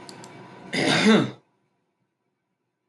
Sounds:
Throat clearing